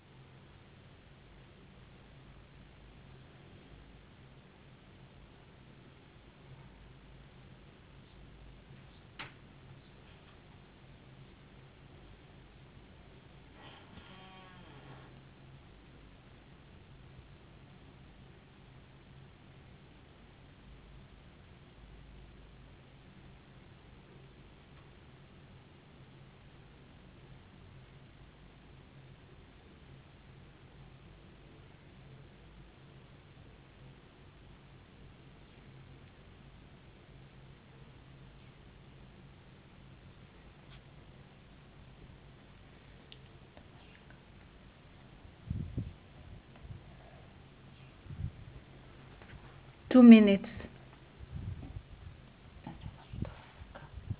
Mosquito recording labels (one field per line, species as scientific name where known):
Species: no mosquito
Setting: insect culture